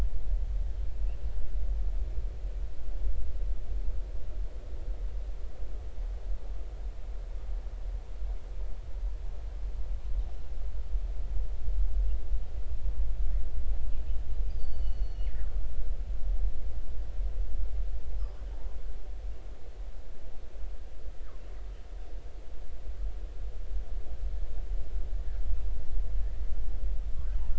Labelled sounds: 14.6	15.3	killer whale, northern resident, 2.9 to 6.0 kHz
18.2	18.5	killer whale, northern resident, 0.99 to 1.4 kHz

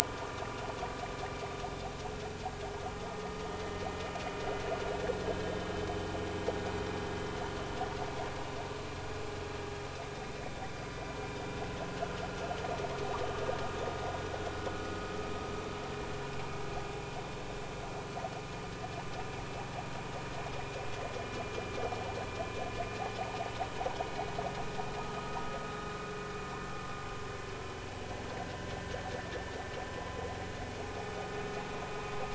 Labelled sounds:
0.0	0.3	vessel noise, 1.4 to 1.5 kHz
5.2	5.5	vessel noise, 3.0 to 3.1 kHz
26.0	26.4	vessel noise, 1.2 to 1.3 kHz
31.0	31.4	vessel noise, 1.2 to 1.3 kHz

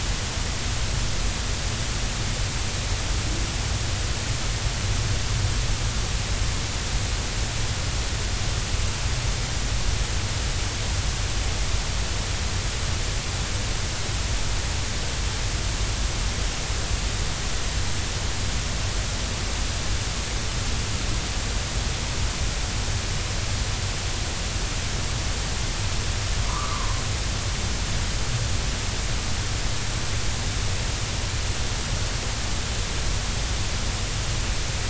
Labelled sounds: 26.5	26.9	humpback whale, 0.93 to 1.3 kHz

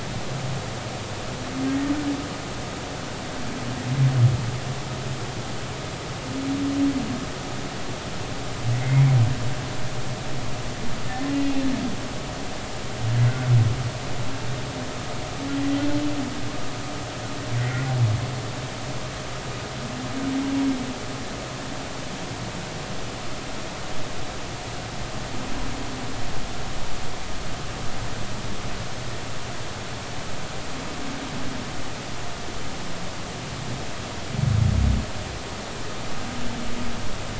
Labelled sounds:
8.8	9.2	humpback whale, 1.9 to 2.4 kHz
17.6	17.9	humpback whale, 1.8 to 2.2 kHz

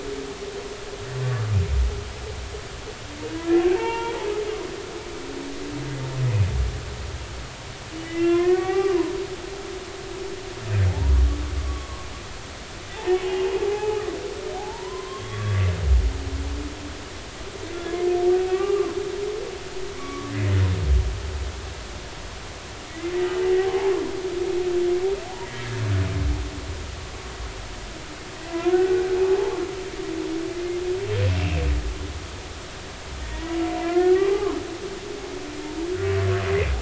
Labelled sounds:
3.7	4.2	humpback whale, 0.86 to 3.3 kHz
8.0	9.0	humpback whale, 0.80 to 2.8 kHz
10.9	11.1	humpback whale, 0.80 to 1.0 kHz
11.7	12.1	humpback whale, 1.0 to 1.2 kHz
12.9	14.0	humpback whale, 0.80 to 2.9 kHz
14.5	15.7	humpback whale, 0.80 to 3.4 kHz
18.3	18.9	humpback whale, 0.80 to 2.8 kHz
19.9	20.3	humpback whale, 1.1 to 2.3 kHz
23.6	23.9	humpback whale, 0.80 to 0.96 kHz
25.2	25.5	humpback whale, 0.80 to 1.0 kHz
28.4	29.1	humpback whale, 1.4 to 2.0 kHz
31.2	31.6	humpback whale, 2.5 to 2.9 kHz
33.2	34.5	humpback whale, 0.80 to 2.0 kHz

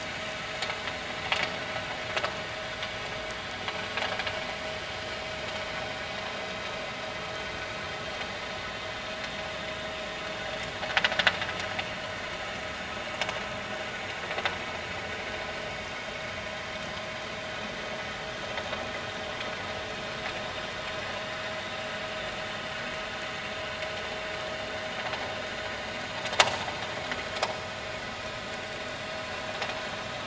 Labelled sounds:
6.4	6.6	vessel noise, 3.8 to 3.9 kHz

